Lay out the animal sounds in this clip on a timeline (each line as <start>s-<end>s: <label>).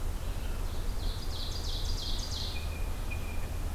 0.0s-3.7s: Red-eyed Vireo (Vireo olivaceus)
0.6s-2.8s: Ovenbird (Seiurus aurocapilla)
2.5s-3.7s: Blue Jay (Cyanocitta cristata)